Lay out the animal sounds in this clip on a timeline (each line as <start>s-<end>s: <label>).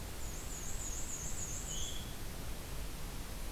0.0s-2.1s: Black-and-white Warbler (Mniotilta varia)
1.7s-2.1s: Veery (Catharus fuscescens)